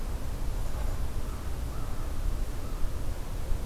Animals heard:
forest ambience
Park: Acadia National Park